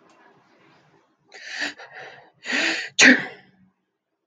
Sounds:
Sneeze